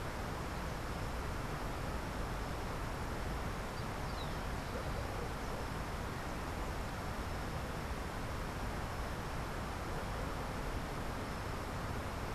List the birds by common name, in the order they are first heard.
Rufous-collared Sparrow